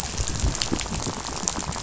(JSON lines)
{"label": "biophony, rattle", "recorder": "SoundTrap 500"}